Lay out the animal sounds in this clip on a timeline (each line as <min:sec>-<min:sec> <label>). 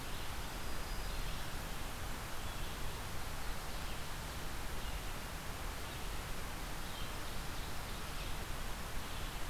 0:00.0-0:09.5 Red-eyed Vireo (Vireo olivaceus)
0:00.2-0:01.7 Black-throated Green Warbler (Setophaga virens)
0:06.8-0:08.2 Ovenbird (Seiurus aurocapilla)